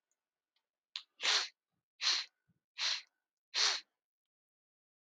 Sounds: Sniff